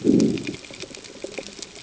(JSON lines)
{"label": "ambient", "recorder": "HydroMoth"}